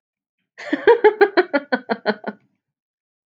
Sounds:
Laughter